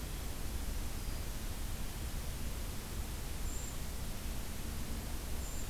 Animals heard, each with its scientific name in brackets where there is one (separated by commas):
Brown Creeper (Certhia americana)